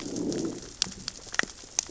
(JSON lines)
{"label": "biophony, growl", "recorder": "SoundTrap 600 or HydroMoth"}